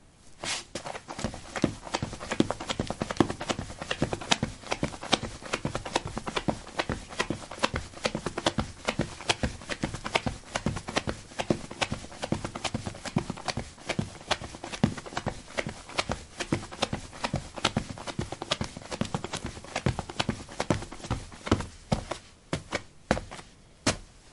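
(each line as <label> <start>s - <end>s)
Sneakers running on soil at medium speed. 0.0s - 24.3s
Stomping footsteps. 22.8s - 24.3s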